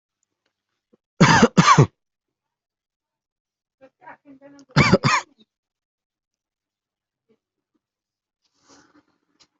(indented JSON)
{
  "expert_labels": [
    {
      "quality": "good",
      "cough_type": "dry",
      "dyspnea": false,
      "wheezing": false,
      "stridor": false,
      "choking": false,
      "congestion": false,
      "nothing": true,
      "diagnosis": "upper respiratory tract infection",
      "severity": "mild"
    }
  ],
  "gender": "female",
  "respiratory_condition": false,
  "fever_muscle_pain": false,
  "status": "COVID-19"
}